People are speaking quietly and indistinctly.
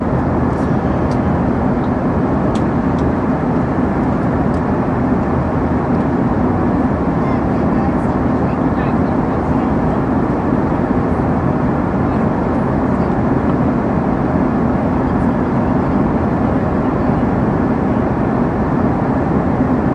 7.3s 19.9s

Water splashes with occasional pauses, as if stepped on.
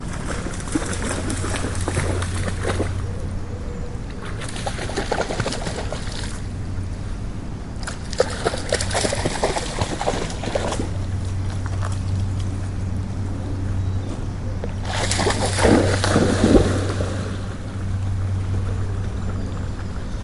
0.1s 2.8s, 4.3s 6.5s, 8.0s 10.8s, 14.9s 17.3s

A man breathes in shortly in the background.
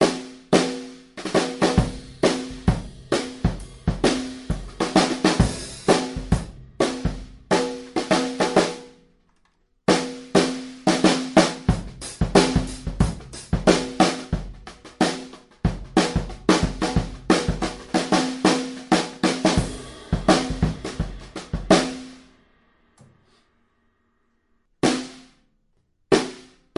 23.2s 24.4s

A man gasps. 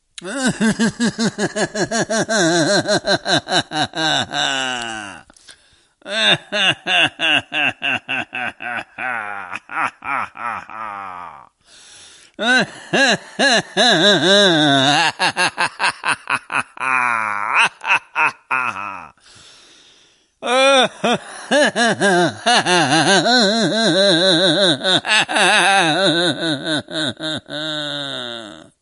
11.7s 12.3s

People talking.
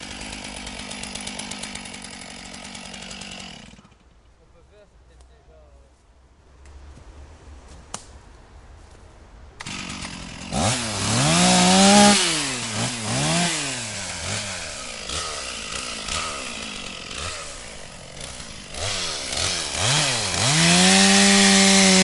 4.4s 7.6s

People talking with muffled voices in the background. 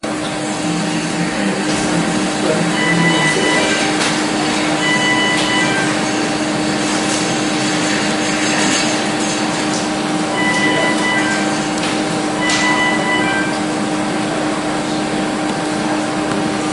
0.6s 4.1s, 10.4s 12.4s, 13.6s 16.7s

